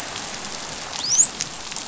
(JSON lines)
{"label": "biophony, dolphin", "recorder": "SoundTrap 500"}